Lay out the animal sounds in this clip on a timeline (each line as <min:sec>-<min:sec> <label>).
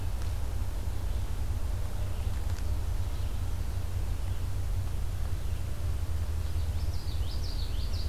0:00.0-0:08.1 Red-eyed Vireo (Vireo olivaceus)
0:06.5-0:08.1 Common Yellowthroat (Geothlypis trichas)